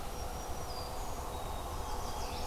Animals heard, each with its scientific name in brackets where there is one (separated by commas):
Black-throated Green Warbler (Setophaga virens), Chestnut-sided Warbler (Setophaga pensylvanica), Black-capped Chickadee (Poecile atricapillus)